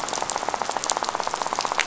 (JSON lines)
{"label": "biophony, rattle", "recorder": "SoundTrap 500"}